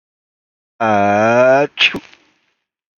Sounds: Sneeze